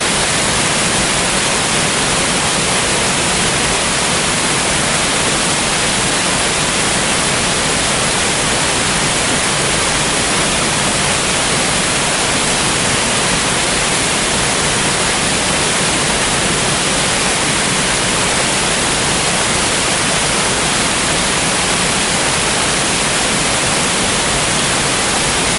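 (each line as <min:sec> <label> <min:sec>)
0:00.1 A loud river stream flowing steadily. 0:25.6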